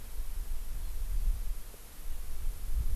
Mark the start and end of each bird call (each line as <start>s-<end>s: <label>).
0.8s-1.4s: Eurasian Skylark (Alauda arvensis)